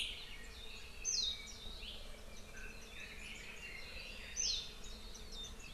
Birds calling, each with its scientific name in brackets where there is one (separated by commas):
Red-billed Leiothrix (Leiothrix lutea), Warbling White-eye (Zosterops japonicus)